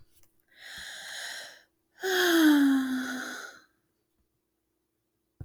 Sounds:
Sigh